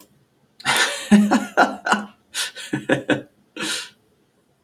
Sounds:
Laughter